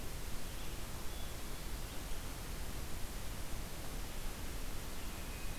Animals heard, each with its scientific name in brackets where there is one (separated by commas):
Hermit Thrush (Catharus guttatus), Red-eyed Vireo (Vireo olivaceus)